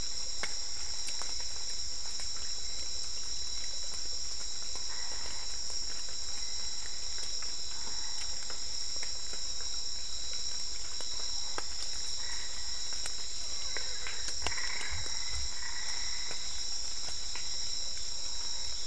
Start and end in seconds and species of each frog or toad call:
4.6	5.8	Boana albopunctata
12.0	16.5	Boana albopunctata
Cerrado, Brazil, 7pm

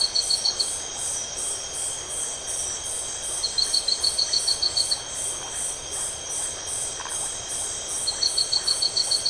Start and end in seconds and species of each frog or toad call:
0.0	9.2	Leptodactylus notoaktites
7.0	7.3	Phyllomedusa distincta
Atlantic Forest, Brazil, 9:30pm

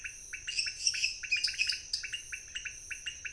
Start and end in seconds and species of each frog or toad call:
0.0	3.3	Leptodactylus podicipinus
0.4	1.2	Dendropsophus minutus
1.2	2.1	Dendropsophus nanus
Cerrado, Brazil, ~11pm

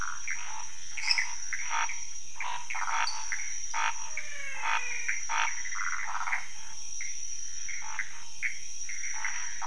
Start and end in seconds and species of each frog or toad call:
0.0	5.6	Scinax fuscovarius
0.0	9.6	Pithecopus azureus
1.0	1.4	Dendropsophus minutus
2.8	3.4	Dendropsophus nanus
3.9	5.3	Physalaemus albonotatus
5.7	6.4	Phyllomedusa sauvagii
Cerrado, Brazil, ~2am

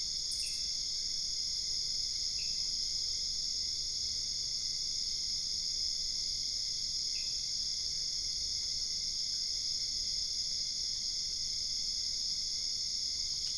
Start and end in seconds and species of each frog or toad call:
0.2	0.8	Pithecopus azureus
2.3	2.8	Pithecopus azureus
7.0	7.5	Pithecopus azureus
Cerrado, Brazil, 2:30am

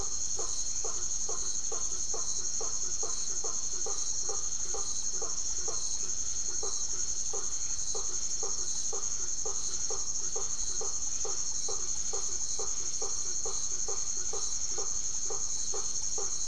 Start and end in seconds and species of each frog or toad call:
0.0	16.4	Leptodactylus notoaktites
0.8	16.4	Boana faber
Atlantic Forest, Brazil, 8pm

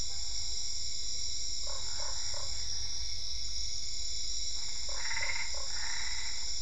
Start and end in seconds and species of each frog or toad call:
1.5	2.7	Boana lundii
4.8	5.8	Boana lundii
4.9	6.6	Boana albopunctata
Cerrado, Brazil, 7:30pm

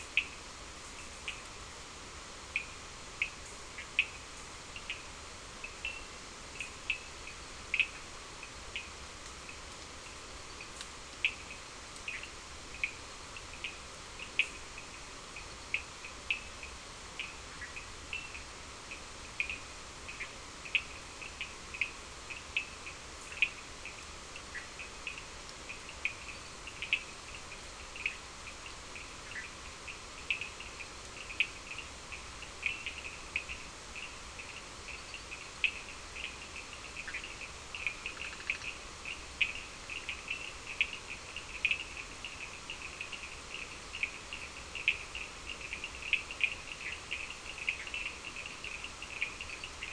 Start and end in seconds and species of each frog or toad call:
0.0	49.9	Sphaenorhynchus surdus
37.0	38.8	Boana bischoffi
Atlantic Forest, Brazil, 5am

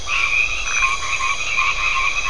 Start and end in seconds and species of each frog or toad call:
0.0	2.2	Boana albomarginata
0.6	1.0	Phyllomedusa distincta
Atlantic Forest, Brazil, 10:30pm

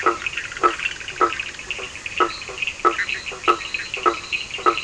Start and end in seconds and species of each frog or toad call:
0.0	1.8	Boana bischoffi
0.0	4.8	Boana faber
0.0	4.8	Sphaenorhynchus surdus
2.0	4.8	Boana leptolineata
Atlantic Forest, Brazil, ~10pm

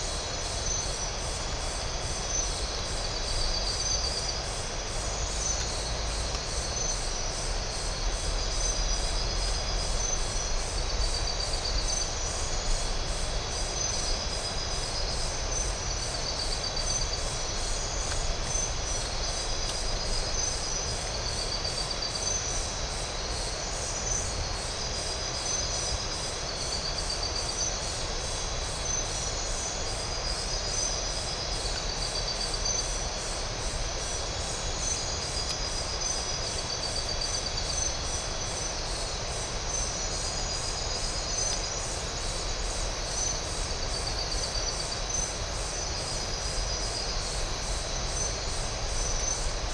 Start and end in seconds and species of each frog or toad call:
none
Atlantic Forest, Brazil, 11:30pm

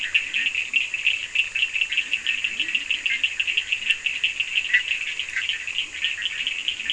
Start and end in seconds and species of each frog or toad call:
0.0	3.4	Leptodactylus latrans
4.4	6.5	Boana bischoffi
5.6	6.9	Leptodactylus latrans
Atlantic Forest, Brazil, 3:30am

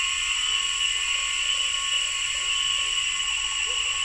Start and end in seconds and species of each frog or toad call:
0.0	2.6	Boana albopunctata
0.0	4.0	Boana lundii
Cerrado, Brazil, 6:30pm

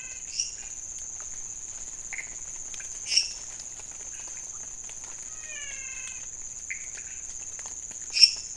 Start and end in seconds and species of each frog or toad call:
0.0	0.6	Physalaemus albonotatus
0.0	8.5	Leptodactylus podicipinus
0.3	0.9	Dendropsophus minutus
2.9	3.6	Dendropsophus minutus
5.3	6.4	Physalaemus albonotatus
Cerrado, Brazil, 3am

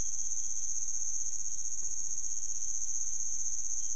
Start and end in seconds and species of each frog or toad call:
none
Cerrado, Brazil, 1am

